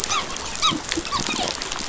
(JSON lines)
{"label": "biophony, dolphin", "recorder": "SoundTrap 500"}